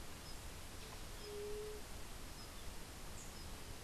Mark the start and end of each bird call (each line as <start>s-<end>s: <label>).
1.1s-1.9s: White-tipped Dove (Leptotila verreauxi)